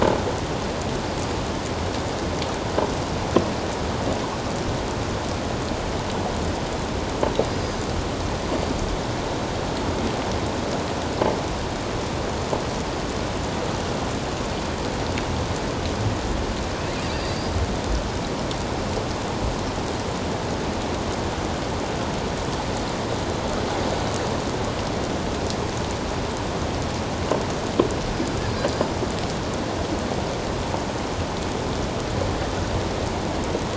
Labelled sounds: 17.0	17.5	killer whale, offshore, 4.6 to 4.9 kHz

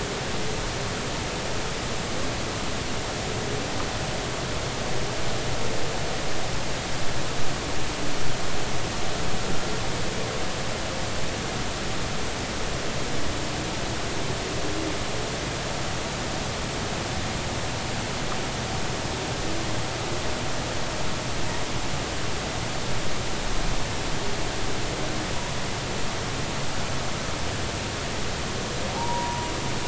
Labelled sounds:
28.9	29.5	humpback whale, 0.80 to 1.0 kHz

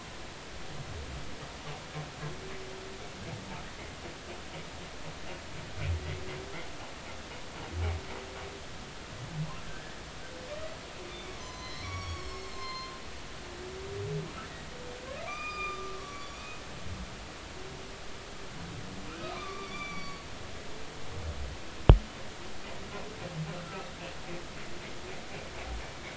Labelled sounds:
11.1	12.9	humpback whale, 0.96 to 7.9 kHz
15.2	16.4	humpback whale, 1.1 to 7.4 kHz
19.1	20.2	humpback whale, 1.1 to 6.0 kHz

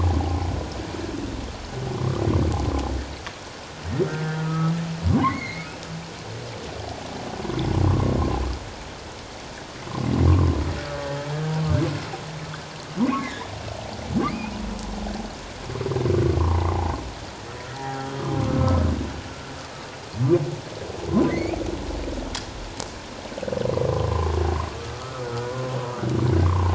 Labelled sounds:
1.9	2.2	humpback whale, 0.97 to 1.3 kHz
4.1	4.7	humpback whale, 1.2 to 1.6 kHz
5.1	5.7	humpback whale, 0.91 to 2.3 kHz
7.8	8.1	humpback whale, 0.94 to 1.2 kHz
10.3	10.6	humpback whale, 0.97 to 1.2 kHz
13.1	13.5	humpback whale, 1.6 to 2.6 kHz
16.4	16.7	humpback whale, 0.78 to 1.2 kHz
17.8	18.8	humpback whale, 0.78 to 1.3 kHz
21.3	21.6	humpback whale, 1.8 to 2.6 kHz
24.1	24.4	humpback whale, 0.97 to 1.2 kHz
24.8	25.3	humpback whale, 1.1 to 1.5 kHz
26.4	26.7	humpback whale, 0.81 to 1.2 kHz

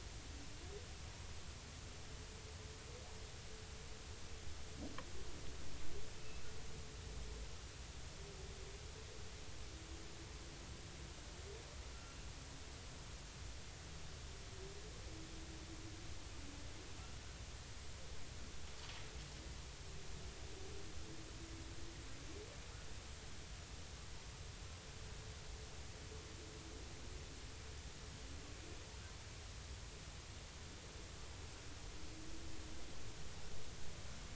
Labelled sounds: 12.0	12.3	humpback whale, 2.7 to 2.8 kHz

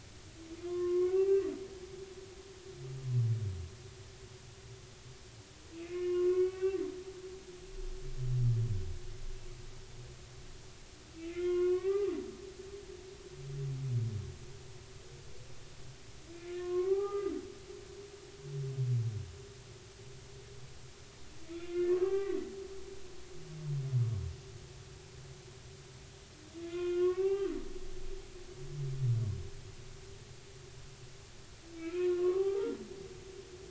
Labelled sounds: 0.7	1.5	humpback whale, 0.99 to 2.3 kHz
5.7	6.8	humpback whale, 0.99 to 2.8 kHz
11.2	12.1	humpback whale, 0.80 to 3.0 kHz
16.5	17.3	humpback whale, 0.80 to 2.1 kHz
21.5	22.4	humpback whale, 0.80 to 2.5 kHz
26.6	27.5	humpback whale, 0.80 to 3.6 kHz
31.8	32.8	humpback whale, 0.80 to 1.5 kHz

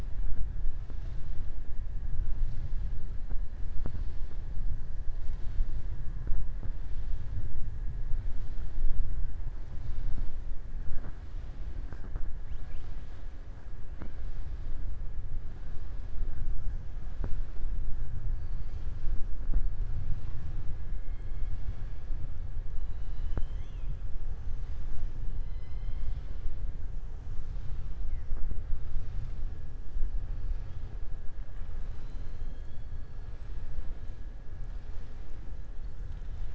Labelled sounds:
25.4	26.3	killer whale, southern resident, 2.0 to 5.3 kHz

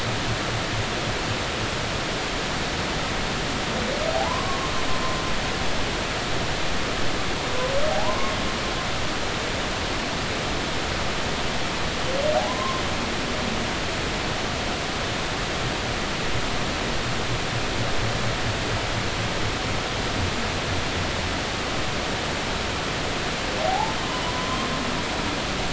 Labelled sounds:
4.1	4.6	humpback whale, 0.80 to 1.2 kHz
7.9	8.3	humpback whale, 0.80 to 1.1 kHz
12.5	12.8	humpback whale, 0.93 to 1.1 kHz
23.6	24.0	humpback whale, 0.80 to 1.1 kHz
24.2	24.7	humpback whale, 0.93 to 1.1 kHz

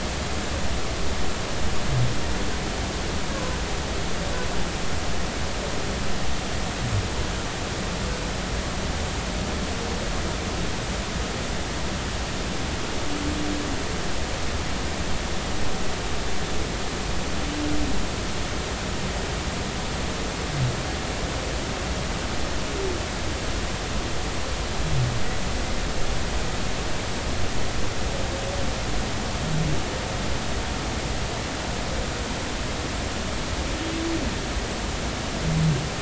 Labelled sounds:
3.3	3.6	humpback whale, 0.99 to 1.1 kHz

